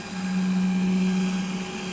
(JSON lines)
{"label": "anthrophony, boat engine", "recorder": "SoundTrap 500"}